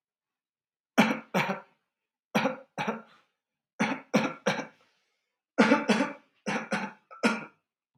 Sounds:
Cough